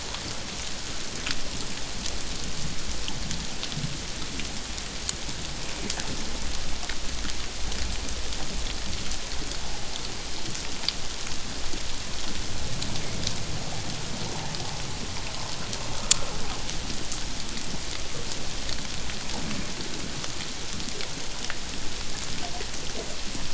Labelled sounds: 15.9	16.3	water noise, 1.2 to 1.4 kHz

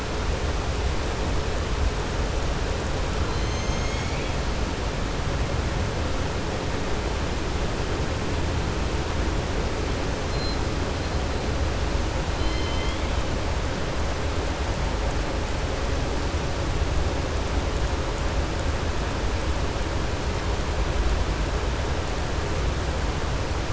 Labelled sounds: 12.3	13.1	killer whale, southern resident, 2.0 to 5.2 kHz

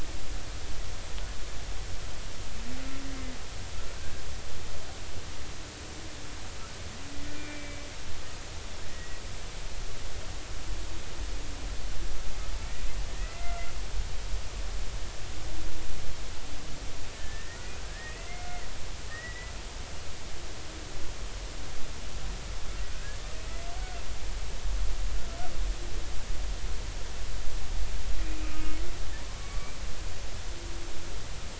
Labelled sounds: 4.0	4.2	humpback whale, 1.5 to 1.7 kHz
7.3	7.9	humpback whale, 1.4 to 2.4 kHz
8.9	9.2	humpback whale, 1.8 to 2.0 kHz
13.1	13.6	humpback whale, 1.8 to 2.1 kHz
17.1	18.6	humpback whale, 1.4 to 2.1 kHz
19.1	19.5	humpback whale, 1.7 to 2.0 kHz
22.9	23.2	humpback whale, 1.5 to 1.8 kHz
28.2	29.7	humpback whale, 1.1 to 2.7 kHz

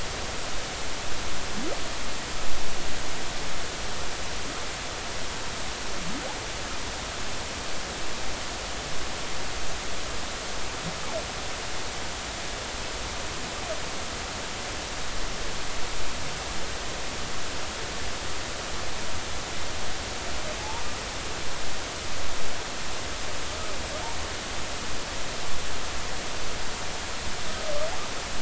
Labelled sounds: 20.6	20.8	humpback whale, 0.80 to 0.99 kHz

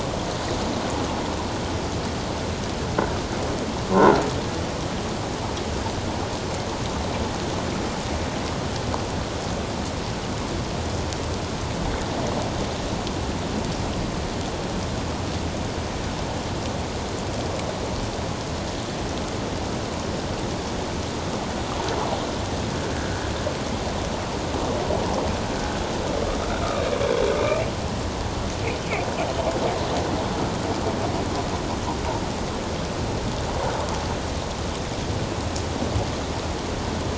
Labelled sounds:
3.9	4.2	croaking sound likely from a nearby submerged object, 0.84 to 1.5 kHz

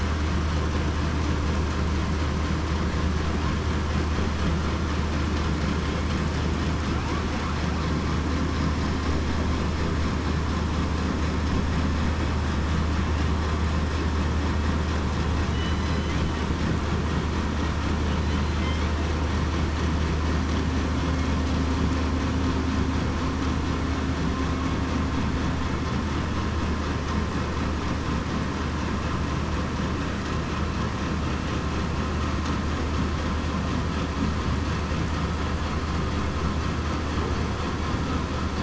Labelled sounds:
15.5	16.1	killer whale, southern resident, 2.9 to 4.1 kHz

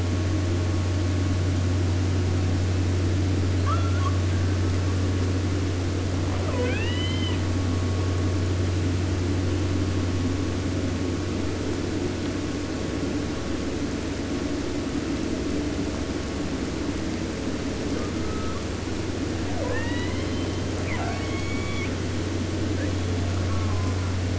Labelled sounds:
3.5	4.5	killer whale, 0.50 to 6.9 kHz
6.2	7.4	killer whale, southern resident, J pod, call S44, 0.29 to 7.8 kHz
17.9	18.9	killer whale, 0.76 to 2.8 kHz
19.5	22.0	killer whale, southern resident, 0.44 to 7.3 kHz
22.7	23.3	killer whale, 0.95 to 4.0 kHz
23.3	24.2	killer whale, southern resident, J pod, call S04, 0.52 to 3.2 kHz

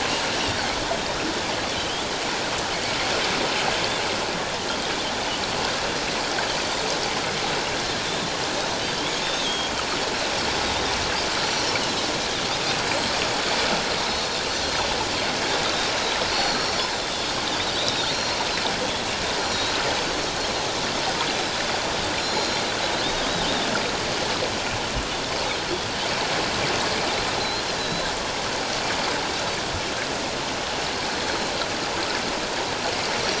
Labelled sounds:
1.8	2.1	Pacific white-sided dolphin, 2.9 to 3.6 kHz
9.0	9.7	Pacific white-sided dolphin, 3.0 to 6.6 kHz
14.1	14.7	Pacific white-sided dolphin, 4.2 to 6.2 kHz
16.3	17.3	Pacific white-sided dolphin, 3.3 to 5.8 kHz
17.8	18.4	Pacific white-sided dolphin, 3.3 to 4.5 kHz
19.4	19.7	Pacific white-sided dolphin, 4.1 to 7.2 kHz
22.2	22.6	Pacific white-sided dolphin, 3.9 to 7.1 kHz
27.4	28.1	Pacific white-sided dolphin, 3.8 to 4.3 kHz
31.1	31.5	Pacific white-sided dolphin, 4.1 to 4.3 kHz

